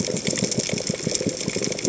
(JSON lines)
{"label": "biophony, chatter", "recorder": "HydroMoth"}